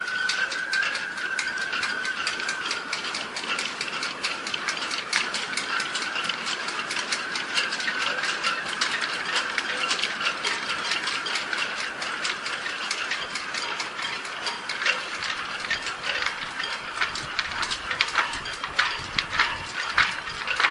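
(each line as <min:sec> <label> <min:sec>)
0:00.0 Sailboat masts clank constantly with wind noise in the background. 0:20.7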